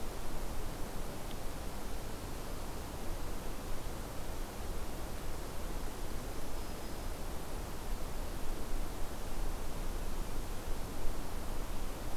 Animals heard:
forest ambience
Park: Hubbard Brook Experimental Forest